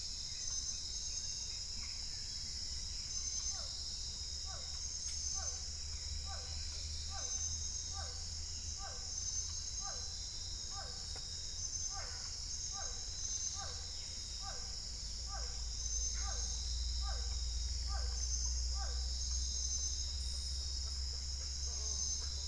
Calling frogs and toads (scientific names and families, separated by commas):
Physalaemus cuvieri (Leptodactylidae)